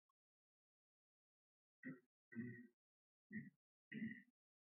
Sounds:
Throat clearing